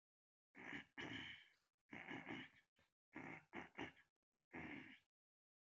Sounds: Throat clearing